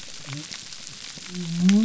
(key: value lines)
label: biophony
recorder: SoundTrap 300